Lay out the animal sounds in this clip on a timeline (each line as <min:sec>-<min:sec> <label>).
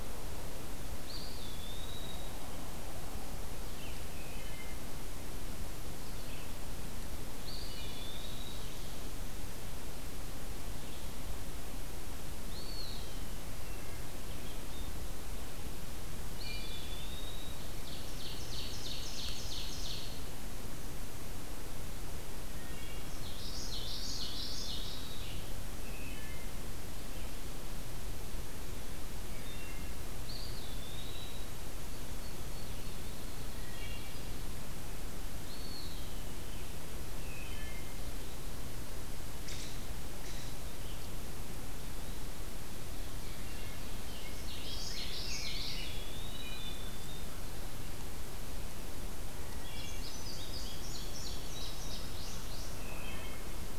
0:00.0-0:25.5 Red-eyed Vireo (Vireo olivaceus)
0:00.9-0:02.5 Eastern Wood-Pewee (Contopus virens)
0:04.1-0:04.9 Wood Thrush (Hylocichla mustelina)
0:07.4-0:08.7 Eastern Wood-Pewee (Contopus virens)
0:12.3-0:13.2 Eastern Wood-Pewee (Contopus virens)
0:13.2-0:14.1 Wood Thrush (Hylocichla mustelina)
0:16.2-0:17.0 Wood Thrush (Hylocichla mustelina)
0:16.3-0:17.7 Eastern Wood-Pewee (Contopus virens)
0:17.7-0:20.2 Ovenbird (Seiurus aurocapilla)
0:22.4-0:23.2 Wood Thrush (Hylocichla mustelina)
0:23.0-0:25.2 Common Yellowthroat (Geothlypis trichas)
0:25.7-0:26.6 Wood Thrush (Hylocichla mustelina)
0:29.3-0:30.0 Wood Thrush (Hylocichla mustelina)
0:30.0-0:31.6 Eastern Wood-Pewee (Contopus virens)
0:32.1-0:34.6 Field Sparrow (Spizella pusilla)
0:33.7-0:34.2 Wood Thrush (Hylocichla mustelina)
0:35.4-0:36.2 Eastern Wood-Pewee (Contopus virens)
0:37.1-0:38.1 Wood Thrush (Hylocichla mustelina)
0:39.3-0:40.7 American Robin (Turdus migratorius)
0:43.8-0:46.0 Rose-breasted Grosbeak (Pheucticus ludovicianus)
0:44.3-0:45.9 Common Yellowthroat (Geothlypis trichas)
0:45.4-0:46.8 Eastern Wood-Pewee (Contopus virens)
0:46.3-0:47.2 Wood Thrush (Hylocichla mustelina)
0:49.7-0:52.8 Indigo Bunting (Passerina cyanea)
0:52.7-0:53.4 Wood Thrush (Hylocichla mustelina)